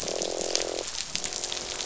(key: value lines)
label: biophony, croak
recorder: SoundTrap 500